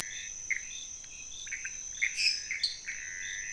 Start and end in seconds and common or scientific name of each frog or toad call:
0.0	3.5	pointedbelly frog
0.0	3.5	Pithecopus azureus
2.0	2.6	lesser tree frog